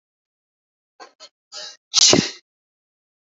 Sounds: Sneeze